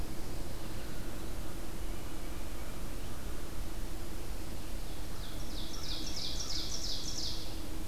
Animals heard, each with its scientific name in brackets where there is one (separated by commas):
Ovenbird (Seiurus aurocapilla), American Crow (Corvus brachyrhynchos), Tufted Titmouse (Baeolophus bicolor)